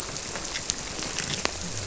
{"label": "biophony", "recorder": "SoundTrap 300"}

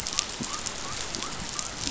{"label": "biophony", "recorder": "SoundTrap 500"}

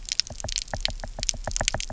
{"label": "biophony, knock", "recorder": "SoundTrap 300"}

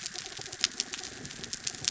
{"label": "anthrophony, mechanical", "recorder": "SoundTrap 300"}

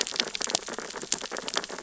{"label": "biophony, sea urchins (Echinidae)", "recorder": "SoundTrap 600 or HydroMoth"}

